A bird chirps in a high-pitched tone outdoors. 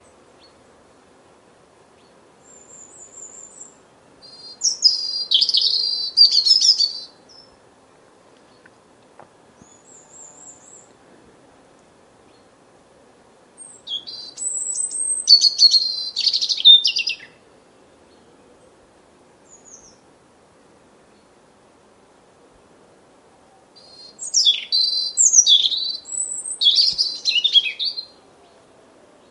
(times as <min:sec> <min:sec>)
0:04.3 0:07.4, 0:13.4 0:17.4, 0:23.8 0:28.2